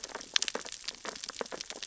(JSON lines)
{"label": "biophony, sea urchins (Echinidae)", "recorder": "SoundTrap 600 or HydroMoth"}